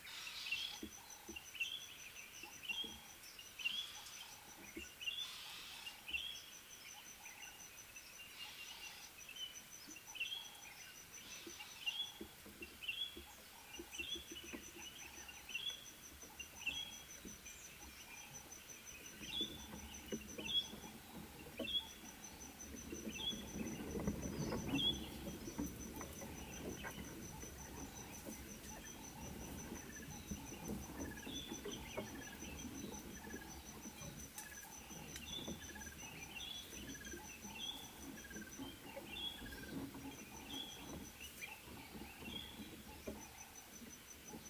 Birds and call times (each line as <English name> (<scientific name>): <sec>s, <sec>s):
White-browed Robin-Chat (Cossypha heuglini): 2.7s, 14.2s, 23.3s, 39.3s
Ring-necked Dove (Streptopelia capicola): 11.5s
Red-fronted Tinkerbird (Pogoniulus pusillus): 31.1s, 38.4s